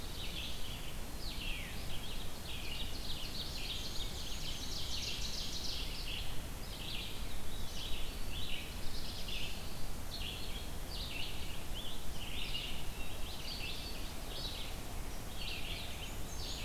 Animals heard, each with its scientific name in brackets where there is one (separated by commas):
Scarlet Tanager (Piranga olivacea), Black-and-white Warbler (Mniotilta varia), Black-throated Blue Warbler (Setophaga caerulescens), Red-eyed Vireo (Vireo olivaceus), Veery (Catharus fuscescens), Ovenbird (Seiurus aurocapilla)